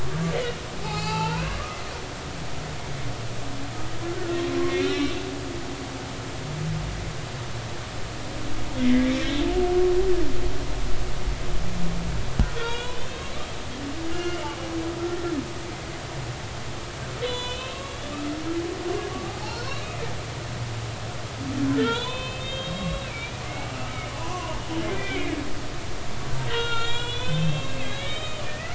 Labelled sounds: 0.8	1.6	humpback whale, 0.80 to 4.8 kHz
4.6	5.1	humpback whale, 2.1 to 4.1 kHz
8.8	9.1	humpback whale, 1.7 to 2.2 kHz
12.6	14.4	humpback whale, 1.3 to 3.8 kHz
17.2	18.0	humpback whale, 0.93 to 7.5 kHz
19.5	19.7	humpback whale, 4.1 to 4.5 kHz
21.8	24.6	humpback whale, 0.86 to 4.2 kHz
24.9	25.4	humpback whale, 1.9 to 2.5 kHz
26.5	28.7	humpback whale, 0.96 to 7.3 kHz

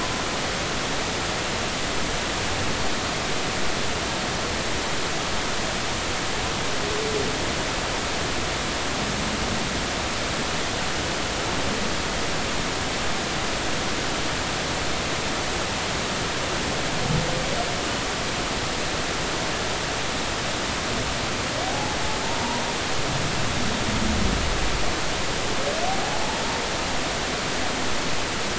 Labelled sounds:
21.6	22.0	humpback whale, 0.80 to 0.90 kHz

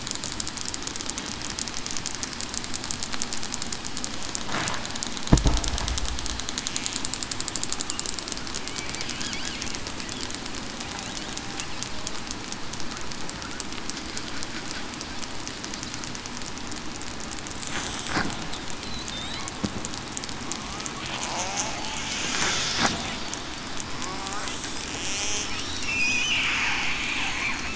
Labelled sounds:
21.3	21.7	killer whale, southern resident, 0.66 to 0.89 kHz
25.1	25.4	killer whale, southern resident, 2.1 to 3.4 kHz
27.3	27.7	killer whale, southern resident, 4.2 to 4.3 kHz

